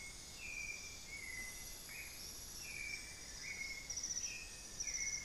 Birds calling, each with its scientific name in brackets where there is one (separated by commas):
Amazonian Barred-Woodcreeper (Dendrocolaptes certhia), White-necked Thrush (Turdus albicollis), Elegant Woodcreeper (Xiphorhynchus elegans)